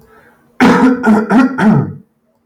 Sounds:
Throat clearing